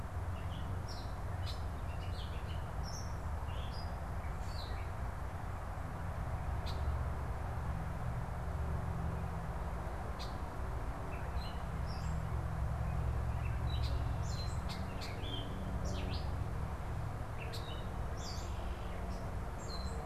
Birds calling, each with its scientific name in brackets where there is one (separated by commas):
Gray Catbird (Dumetella carolinensis), Red-winged Blackbird (Agelaius phoeniceus)